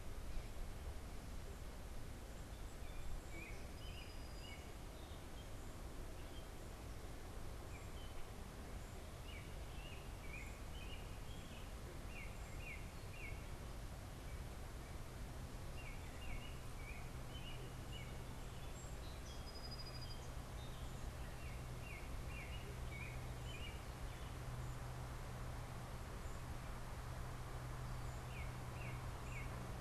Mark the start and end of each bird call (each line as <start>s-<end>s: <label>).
2.3s-5.1s: Song Sparrow (Melospiza melodia)
3.2s-29.8s: American Robin (Turdus migratorius)
18.3s-20.6s: Song Sparrow (Melospiza melodia)